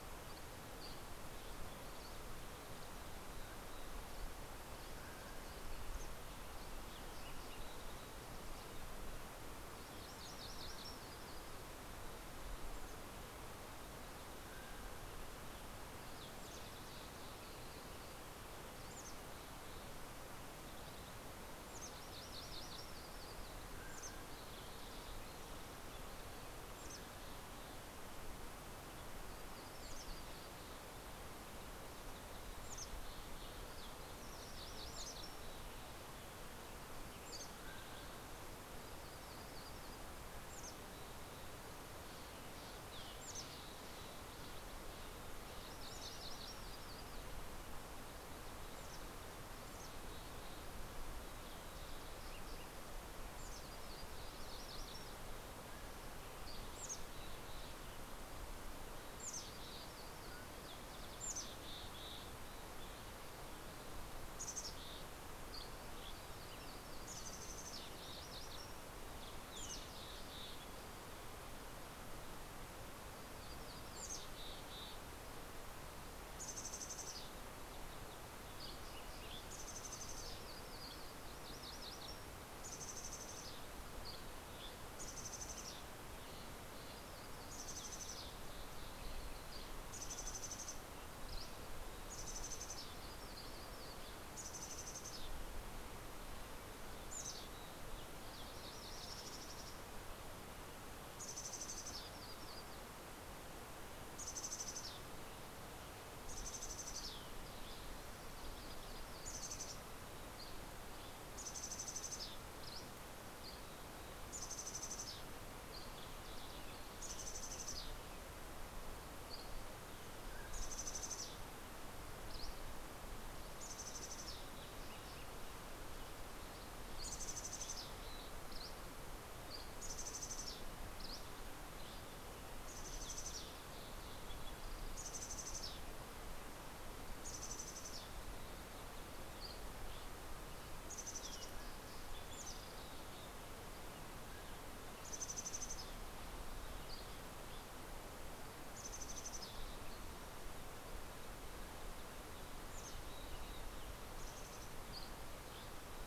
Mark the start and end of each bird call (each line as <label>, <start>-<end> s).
Dusky Flycatcher (Empidonax oberholseri), 0.2-2.3 s
Mountain Quail (Oreortyx pictus), 4.4-5.9 s
MacGillivray's Warbler (Geothlypis tolmiei), 9.7-11.8 s
Mountain Quail (Oreortyx pictus), 14.1-15.2 s
Green-tailed Towhee (Pipilo chlorurus), 15.7-18.2 s
Mountain Chickadee (Poecile gambeli), 18.7-19.8 s
Mountain Chickadee (Poecile gambeli), 21.3-22.2 s
MacGillivray's Warbler (Geothlypis tolmiei), 21.6-23.8 s
Mountain Quail (Oreortyx pictus), 23.5-24.5 s
Mountain Chickadee (Poecile gambeli), 23.8-25.2 s
Mountain Chickadee (Poecile gambeli), 26.5-27.6 s
Western Tanager (Piranga ludoviciana), 28.3-29.6 s
Mountain Chickadee (Poecile gambeli), 29.4-30.6 s
Mountain Chickadee (Poecile gambeli), 32.5-33.5 s
MacGillivray's Warbler (Geothlypis tolmiei), 34.1-35.6 s
Mountain Chickadee (Poecile gambeli), 37.1-38.4 s
Mountain Quail (Oreortyx pictus), 37.2-38.3 s
Mountain Chickadee (Poecile gambeli), 40.4-41.7 s
Steller's Jay (Cyanocitta stelleri), 41.8-43.6 s
Mountain Chickadee (Poecile gambeli), 43.2-44.5 s
MacGillivray's Warbler (Geothlypis tolmiei), 45.2-47.5 s
Mountain Chickadee (Poecile gambeli), 48.8-50.8 s
Mountain Chickadee (Poecile gambeli), 53.1-54.2 s
MacGillivray's Warbler (Geothlypis tolmiei), 54.1-55.6 s
Mountain Quail (Oreortyx pictus), 55.5-56.0 s
Dusky Flycatcher (Empidonax oberholseri), 56.2-56.8 s
Mountain Chickadee (Poecile gambeli), 56.5-57.7 s
Mountain Chickadee (Poecile gambeli), 59.0-62.3 s
Mountain Quail (Oreortyx pictus), 60.0-60.8 s
Mountain Chickadee (Poecile gambeli), 64.3-65.6 s
Dusky Flycatcher (Empidonax oberholseri), 65.3-66.3 s
Mountain Chickadee (Poecile gambeli), 67.1-68.2 s
Mountain Chickadee (Poecile gambeli), 69.5-70.8 s
Mountain Chickadee (Poecile gambeli), 73.1-155.0 s
Dusky Flycatcher (Empidonax oberholseri), 78.0-79.9 s
MacGillivray's Warbler (Geothlypis tolmiei), 80.2-83.1 s
Dusky Flycatcher (Empidonax oberholseri), 83.6-85.3 s
Dusky Flycatcher (Empidonax oberholseri), 90.9-92.5 s
Yellow-rumped Warbler (Setophaga coronata), 101.1-103.4 s
Dusky Flycatcher (Empidonax oberholseri), 106.7-108.1 s
Dusky Flycatcher (Empidonax oberholseri), 110.2-111.5 s
Dusky Flycatcher (Empidonax oberholseri), 112.6-114.2 s
Dusky Flycatcher (Empidonax oberholseri), 115.4-116.7 s
Dusky Flycatcher (Empidonax oberholseri), 118.8-120.0 s
Mountain Quail (Oreortyx pictus), 119.5-121.4 s
Dusky Flycatcher (Empidonax oberholseri), 122.0-123.2 s
Dusky Flycatcher (Empidonax oberholseri), 128.0-130.0 s
Dusky Flycatcher (Empidonax oberholseri), 130.6-132.3 s
Dusky Flycatcher (Empidonax oberholseri), 139.0-140.6 s
Mountain Quail (Oreortyx pictus), 140.7-142.4 s
Mountain Quail (Oreortyx pictus), 143.8-145.2 s
Dusky Flycatcher (Empidonax oberholseri), 146.7-148.4 s
Dusky Flycatcher (Empidonax oberholseri), 154.6-156.0 s